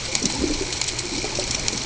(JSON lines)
{"label": "ambient", "recorder": "HydroMoth"}